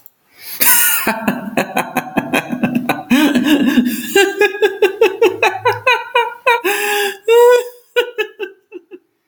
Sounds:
Laughter